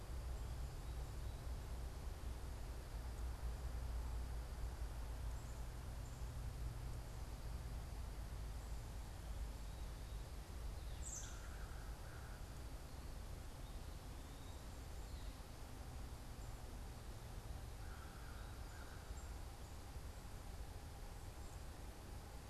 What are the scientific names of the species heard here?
Turdus migratorius, Corvus brachyrhynchos